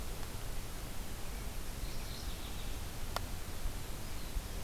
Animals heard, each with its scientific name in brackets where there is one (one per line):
Mourning Warbler (Geothlypis philadelphia)